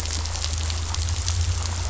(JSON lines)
{"label": "anthrophony, boat engine", "recorder": "SoundTrap 500"}